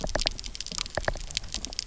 {"label": "biophony, knock", "recorder": "SoundTrap 300"}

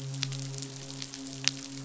{"label": "biophony, midshipman", "recorder": "SoundTrap 500"}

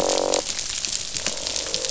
{"label": "biophony, croak", "recorder": "SoundTrap 500"}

